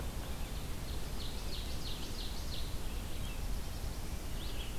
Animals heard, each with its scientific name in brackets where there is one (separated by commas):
Ovenbird (Seiurus aurocapilla), Black-throated Blue Warbler (Setophaga caerulescens), Red-eyed Vireo (Vireo olivaceus), Yellow-bellied Sapsucker (Sphyrapicus varius)